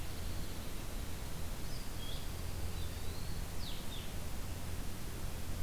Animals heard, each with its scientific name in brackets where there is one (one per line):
Blue-headed Vireo (Vireo solitarius)
Eastern Wood-Pewee (Contopus virens)
Dark-eyed Junco (Junco hyemalis)